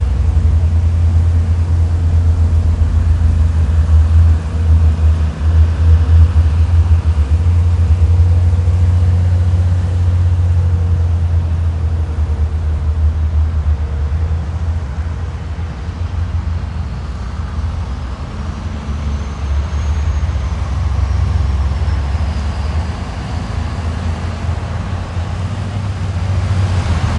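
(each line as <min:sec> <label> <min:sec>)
0:00.0 A heavy vehicle approaching from a distance. 0:27.2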